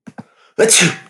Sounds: Sneeze